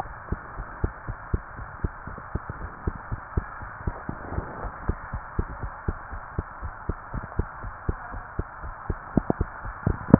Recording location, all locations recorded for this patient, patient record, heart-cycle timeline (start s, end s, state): tricuspid valve (TV)
aortic valve (AV)+pulmonary valve (PV)+tricuspid valve (TV)+mitral valve (MV)
#Age: Child
#Sex: Female
#Height: 115.0 cm
#Weight: 23.1 kg
#Pregnancy status: False
#Murmur: Absent
#Murmur locations: nan
#Most audible location: nan
#Systolic murmur timing: nan
#Systolic murmur shape: nan
#Systolic murmur grading: nan
#Systolic murmur pitch: nan
#Systolic murmur quality: nan
#Diastolic murmur timing: nan
#Diastolic murmur shape: nan
#Diastolic murmur grading: nan
#Diastolic murmur pitch: nan
#Diastolic murmur quality: nan
#Outcome: Normal
#Campaign: 2015 screening campaign
0.00	0.28	unannotated
0.28	0.42	S2
0.42	0.56	diastole
0.56	0.66	S1
0.66	0.78	systole
0.78	0.94	S2
0.94	1.06	diastole
1.06	1.18	S1
1.18	1.28	systole
1.28	1.44	S2
1.44	1.58	diastole
1.58	1.68	S1
1.68	1.80	systole
1.80	1.92	S2
1.92	2.08	diastole
2.08	2.18	S1
2.18	2.33	systole
2.33	2.44	S2
2.44	2.60	diastole
2.60	2.72	S1
2.72	2.84	systole
2.84	2.96	S2
2.96	3.10	diastole
3.10	3.20	S1
3.20	3.32	systole
3.32	3.46	S2
3.46	3.62	diastole
3.62	3.70	S1
3.70	3.84	systole
3.84	3.96	S2
3.96	4.08	diastole
4.08	4.18	S1
4.18	4.32	systole
4.32	4.46	S2
4.46	4.60	diastole
4.60	4.72	S1
4.72	4.86	systole
4.86	5.00	S2
5.00	5.14	diastole
5.14	5.22	S1
5.22	5.38	systole
5.38	5.50	S2
5.50	5.62	diastole
5.62	5.72	S1
5.72	5.84	systole
5.84	5.98	S2
5.98	6.12	diastole
6.12	6.22	S1
6.22	6.34	systole
6.34	6.46	S2
6.46	6.62	diastole
6.62	6.74	S1
6.74	6.88	systole
6.88	6.98	S2
6.98	7.14	diastole
7.14	7.24	S1
7.24	7.36	systole
7.36	7.50	S2
7.50	7.62	diastole
7.62	7.74	S1
7.74	7.88	systole
7.88	8.00	S2
8.00	8.14	diastole
8.14	8.24	S1
8.24	8.38	systole
8.38	8.48	S2
8.48	8.62	diastole
8.62	8.74	S1
8.74	8.86	systole
8.86	8.98	S2
8.98	9.12	diastole
9.12	9.24	S1
9.24	9.36	systole
9.36	9.50	S2
9.50	9.64	diastole
9.64	9.76	S1
9.76	9.86	systole
9.86	9.98	S2
9.98	10.19	unannotated